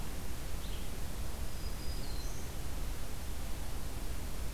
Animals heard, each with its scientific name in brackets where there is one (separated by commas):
Black-throated Green Warbler (Setophaga virens), Red-eyed Vireo (Vireo olivaceus)